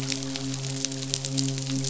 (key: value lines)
label: biophony, midshipman
recorder: SoundTrap 500